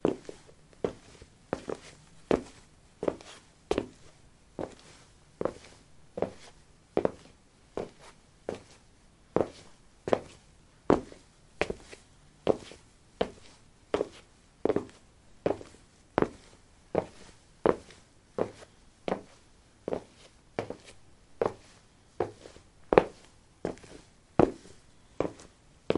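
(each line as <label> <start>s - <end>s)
Rhythmic footsteps hitting the ground. 0.1s - 26.0s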